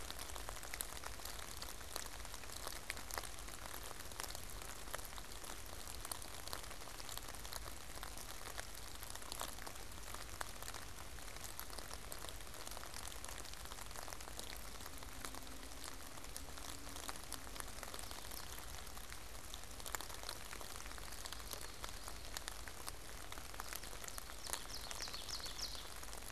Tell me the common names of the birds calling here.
Common Yellowthroat, Ovenbird